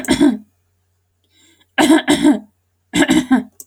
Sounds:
Throat clearing